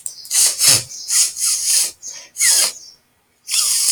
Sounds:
Sniff